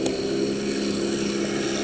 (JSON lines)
{"label": "anthrophony, boat engine", "recorder": "HydroMoth"}